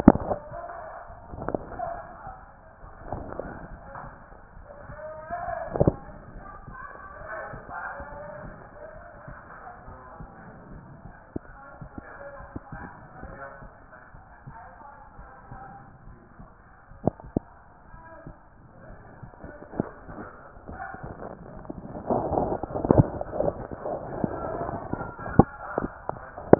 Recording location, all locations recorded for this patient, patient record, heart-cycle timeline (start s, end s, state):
pulmonary valve (PV)
pulmonary valve (PV)+tricuspid valve (TV)+mitral valve (MV)
#Age: nan
#Sex: Female
#Height: nan
#Weight: nan
#Pregnancy status: True
#Murmur: Absent
#Murmur locations: nan
#Most audible location: nan
#Systolic murmur timing: nan
#Systolic murmur shape: nan
#Systolic murmur grading: nan
#Systolic murmur pitch: nan
#Systolic murmur quality: nan
#Diastolic murmur timing: nan
#Diastolic murmur shape: nan
#Diastolic murmur grading: nan
#Diastolic murmur pitch: nan
#Diastolic murmur quality: nan
#Outcome: Normal
#Campaign: 2014 screening campaign
0.00	5.96	unannotated
5.96	6.08	systole
6.08	6.16	S2
6.16	6.34	diastole
6.34	6.46	S1
6.46	6.66	systole
6.66	6.76	S2
6.76	7.18	diastole
7.18	7.28	S1
7.28	7.50	systole
7.50	7.62	S2
7.62	7.98	diastole
7.98	8.06	S1
8.06	8.44	systole
8.44	8.54	S2
8.54	8.96	diastole
8.96	9.04	S1
9.04	9.26	systole
9.26	9.36	S2
9.36	9.86	diastole
9.86	9.98	S1
9.98	10.18	systole
10.18	10.30	S2
10.30	10.70	diastole
10.70	10.82	S1
10.82	11.04	systole
11.04	11.14	S2
11.14	11.70	diastole
11.70	26.59	unannotated